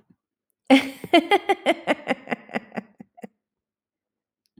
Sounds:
Laughter